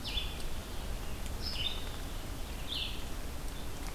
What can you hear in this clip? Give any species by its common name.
Red-eyed Vireo